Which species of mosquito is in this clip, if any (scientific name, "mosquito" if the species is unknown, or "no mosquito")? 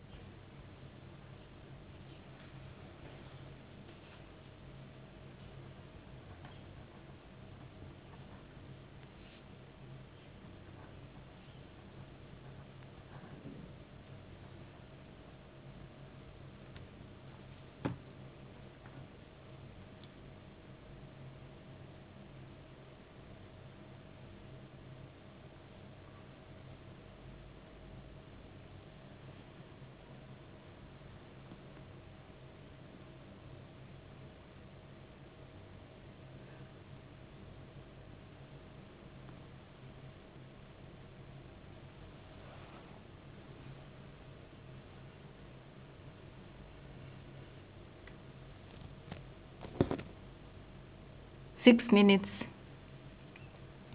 no mosquito